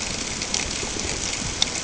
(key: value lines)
label: ambient
recorder: HydroMoth